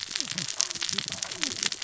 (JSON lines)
{"label": "biophony, cascading saw", "recorder": "SoundTrap 600 or HydroMoth"}